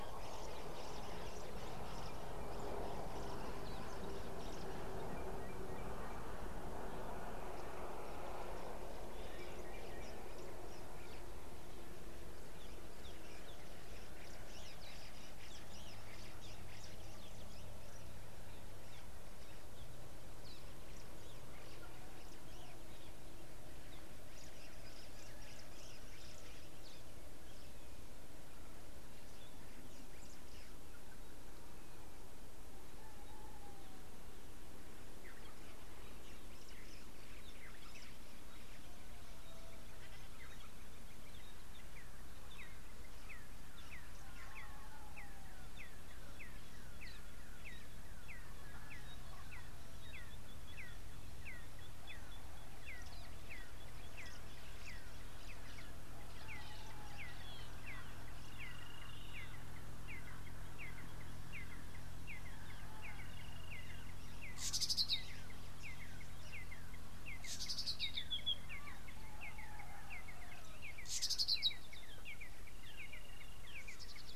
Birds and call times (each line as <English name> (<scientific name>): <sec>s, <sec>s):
Red-and-yellow Barbet (Trachyphonus erythrocephalus): 45.9s, 51.6s, 58.0s, 66.6s, 72.3s
Nubian Woodpecker (Campethera nubica): 52.1s
Brubru (Nilaus afer): 59.0s, 63.6s, 73.3s
Red-backed Scrub-Robin (Cercotrichas leucophrys): 64.9s, 67.8s, 71.3s